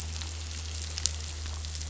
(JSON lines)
{"label": "anthrophony, boat engine", "recorder": "SoundTrap 500"}